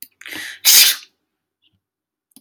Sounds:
Sneeze